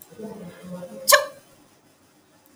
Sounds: Sneeze